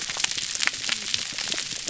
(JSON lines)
{"label": "biophony, whup", "recorder": "SoundTrap 300"}